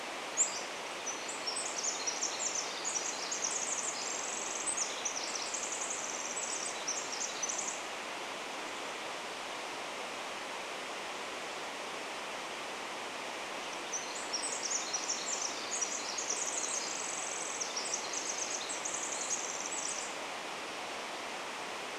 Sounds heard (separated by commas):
Pacific-slope Flycatcher song, Chestnut-backed Chickadee call, Pacific Wren song